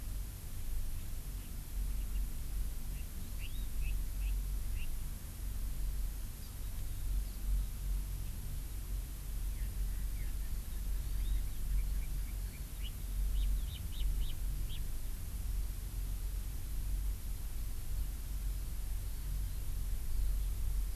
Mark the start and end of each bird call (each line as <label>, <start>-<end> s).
Hawaii Amakihi (Chlorodrepanis virens), 10.9-11.4 s